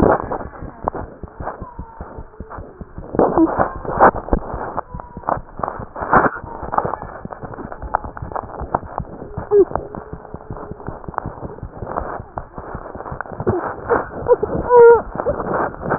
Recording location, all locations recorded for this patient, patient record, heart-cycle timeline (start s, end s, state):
mitral valve (MV)
aortic valve (AV)+pulmonary valve (PV)+tricuspid valve (TV)+mitral valve (MV)
#Age: Infant
#Sex: Male
#Height: 69.0 cm
#Weight: 7.67 kg
#Pregnancy status: False
#Murmur: Absent
#Murmur locations: nan
#Most audible location: nan
#Systolic murmur timing: nan
#Systolic murmur shape: nan
#Systolic murmur grading: nan
#Systolic murmur pitch: nan
#Systolic murmur quality: nan
#Diastolic murmur timing: nan
#Diastolic murmur shape: nan
#Diastolic murmur grading: nan
#Diastolic murmur pitch: nan
#Diastolic murmur quality: nan
#Outcome: Abnormal
#Campaign: 2015 screening campaign
0.00	0.41	unannotated
0.41	0.50	S1
0.50	0.60	systole
0.60	0.70	S2
0.70	0.81	diastole
0.81	0.89	S1
0.89	0.99	systole
0.99	1.08	S2
1.08	1.22	diastole
1.22	1.27	S1
1.27	1.39	systole
1.39	1.45	S2
1.45	1.60	diastole
1.60	1.67	S1
1.67	1.78	systole
1.78	1.86	S2
1.86	1.99	diastole
1.99	2.05	S1
2.05	2.17	systole
2.17	2.24	S2
2.24	2.39	diastole
2.39	2.45	S1
2.45	2.57	systole
2.57	2.63	S2
2.63	2.79	diastole
2.79	2.86	S1
2.86	2.96	systole
2.96	3.06	S2
3.06	15.98	unannotated